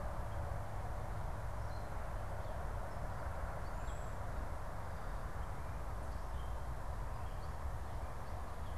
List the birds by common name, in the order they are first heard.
Cedar Waxwing